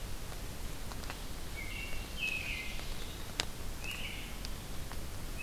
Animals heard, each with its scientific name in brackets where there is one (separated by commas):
American Robin (Turdus migratorius), Red-eyed Vireo (Vireo olivaceus), Ovenbird (Seiurus aurocapilla)